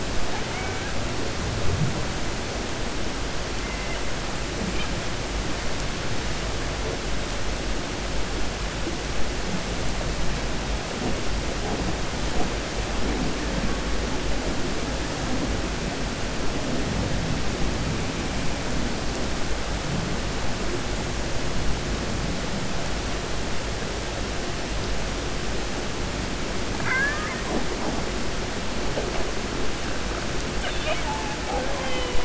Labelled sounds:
0.2	0.9	killer whale, 0.74 to 3.0 kHz

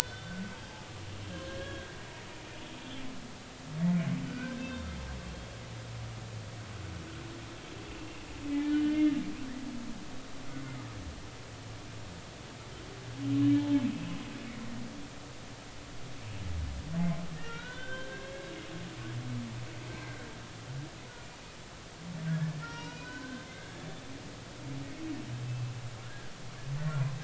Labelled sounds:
0.0	0.3	humpback whale, 3.0 to 3.1 kHz
1.0	1.9	humpback whale, 1.6 to 3.6 kHz
4.3	4.9	humpback whale, 1.4 to 3.7 kHz
5.2	5.5	humpback whale, 3.2 to 3.3 kHz
8.0	9.2	humpback whale, 2.0 to 3.1 kHz
13.5	14.2	humpback whale, 0.83 to 3.2 kHz
17.4	18.5	humpback whale, 1.3 to 4.1 kHz
22.3	24.3	humpback whale, 0.90 to 5.9 kHz
25.5	25.7	humpback whale, 2.6 to 2.7 kHz

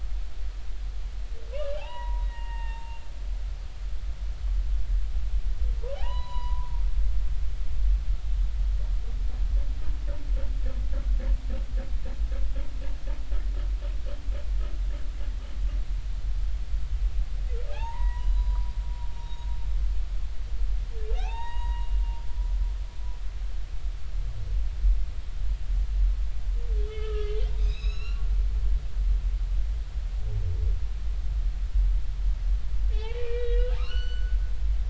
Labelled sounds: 1.5	3.0	humpback whale, 0.80 to 3.8 kHz
6.0	6.7	humpback whale, 0.80 to 5.0 kHz
17.7	18.7	humpback whale, 0.80 to 4.0 kHz
19.2	19.5	humpback whale, 3.7 to 3.9 kHz
21.2	22.0	humpback whale, 0.80 to 7.7 kHz
26.8	28.3	humpback whale, 1.1 to 6.7 kHz
32.9	34.4	humpback whale, 0.80 to 6.0 kHz

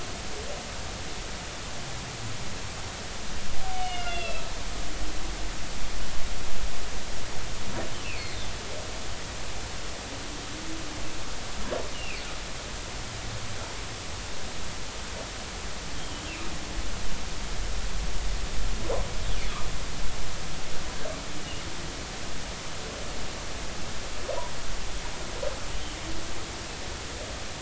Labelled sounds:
3.7	4.5	humpback whale, 2.0 to 4.1 kHz
7.9	8.4	humpback whale, 2.0 to 4.5 kHz
11.9	12.2	humpback whale, 2.2 to 3.0 kHz
21.4	21.6	humpback whale, 2.7 to 3.0 kHz

